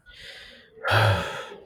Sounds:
Sigh